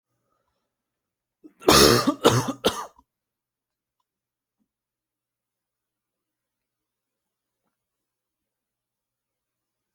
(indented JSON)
{
  "expert_labels": [
    {
      "quality": "good",
      "cough_type": "unknown",
      "dyspnea": false,
      "wheezing": false,
      "stridor": false,
      "choking": false,
      "congestion": false,
      "nothing": true,
      "diagnosis": "lower respiratory tract infection",
      "severity": "mild"
    }
  ],
  "age": 28,
  "gender": "male",
  "respiratory_condition": false,
  "fever_muscle_pain": false,
  "status": "COVID-19"
}